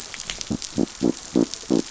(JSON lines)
{"label": "biophony", "recorder": "SoundTrap 500"}